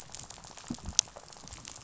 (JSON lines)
{"label": "biophony, rattle", "recorder": "SoundTrap 500"}